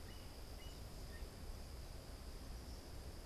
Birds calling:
Yellow-bellied Sapsucker (Sphyrapicus varius)

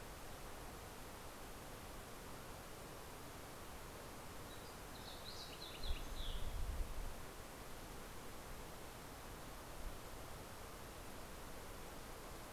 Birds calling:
Fox Sparrow (Passerella iliaca)

